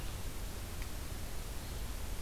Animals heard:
forest ambience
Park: Acadia National Park